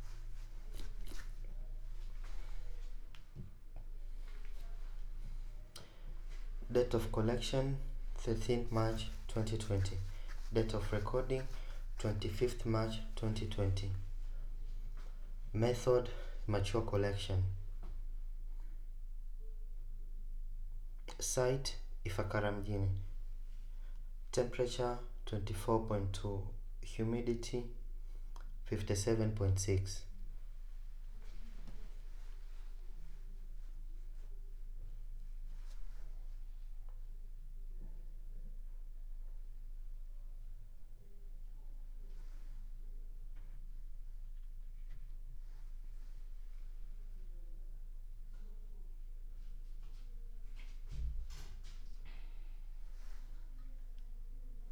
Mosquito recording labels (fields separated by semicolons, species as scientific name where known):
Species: no mosquito; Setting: cup